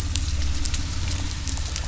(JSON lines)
{"label": "anthrophony, boat engine", "recorder": "SoundTrap 300"}